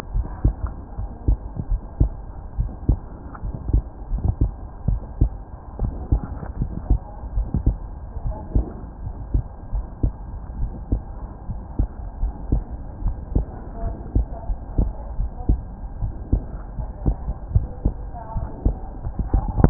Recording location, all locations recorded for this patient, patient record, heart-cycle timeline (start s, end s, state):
pulmonary valve (PV)
aortic valve (AV)+pulmonary valve (PV)+tricuspid valve (TV)+mitral valve (MV)
#Age: Child
#Sex: Female
#Height: 126.0 cm
#Weight: 24.4 kg
#Pregnancy status: False
#Murmur: Absent
#Murmur locations: nan
#Most audible location: nan
#Systolic murmur timing: nan
#Systolic murmur shape: nan
#Systolic murmur grading: nan
#Systolic murmur pitch: nan
#Systolic murmur quality: nan
#Diastolic murmur timing: nan
#Diastolic murmur shape: nan
#Diastolic murmur grading: nan
#Diastolic murmur pitch: nan
#Diastolic murmur quality: nan
#Outcome: Normal
#Campaign: 2015 screening campaign
0.00	0.12	unannotated
0.12	0.26	S1
0.26	0.42	systole
0.42	0.56	S2
0.56	0.98	diastole
0.98	1.10	S1
1.10	1.26	systole
1.26	1.38	S2
1.38	1.70	diastole
1.70	1.80	S1
1.80	1.98	systole
1.98	2.12	S2
2.12	2.56	diastole
2.56	2.70	S1
2.70	2.86	systole
2.86	3.00	S2
3.00	3.44	diastole
3.44	3.54	S1
3.54	3.68	systole
3.68	3.82	S2
3.82	4.12	diastole
4.12	4.22	S1
4.22	4.40	systole
4.40	4.54	S2
4.54	4.86	diastole
4.86	5.00	S1
5.00	5.18	systole
5.18	5.34	S2
5.34	5.78	diastole
5.78	5.92	S1
5.92	6.10	systole
6.10	6.22	S2
6.22	6.60	diastole
6.60	6.72	S1
6.72	6.88	systole
6.88	7.02	S2
7.02	7.34	diastole
7.34	7.48	S1
7.48	7.64	systole
7.64	7.78	S2
7.78	8.24	diastole
8.24	8.36	S1
8.36	8.54	systole
8.54	8.66	S2
8.66	9.04	diastole
9.04	9.14	S1
9.14	9.32	systole
9.32	9.44	S2
9.44	9.74	diastole
9.74	9.86	S1
9.86	10.02	systole
10.02	10.14	S2
10.14	10.56	diastole
10.56	10.72	S1
10.72	10.90	systole
10.90	11.04	S2
11.04	11.50	diastole
11.50	11.62	S1
11.62	11.78	systole
11.78	11.88	S2
11.88	12.20	diastole
12.20	12.34	S1
12.34	12.50	systole
12.50	12.64	S2
12.64	13.04	diastole
13.04	13.16	S1
13.16	13.32	systole
13.32	13.46	S2
13.46	13.84	diastole
13.84	13.96	S1
13.96	14.14	systole
14.14	14.28	S2
14.28	14.45	diastole
14.45	14.59	S1
14.59	14.76	systole
14.76	14.88	S2
14.88	15.18	diastole
15.18	15.32	S1
15.32	15.46	systole
15.46	15.62	S2
15.62	16.00	diastole
16.00	16.12	S1
16.12	16.30	systole
16.30	16.46	S2
16.46	16.78	diastole
16.78	16.90	S1
16.90	17.04	systole
17.04	17.18	S2
17.18	17.50	diastole
17.50	17.66	S1
17.66	17.84	systole
17.84	17.98	S2
17.98	18.36	diastole
18.36	18.48	S1
18.48	18.64	systole
18.64	18.78	S2
18.78	19.70	unannotated